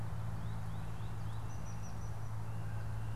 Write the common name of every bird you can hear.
American Goldfinch, unidentified bird